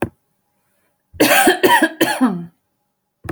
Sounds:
Cough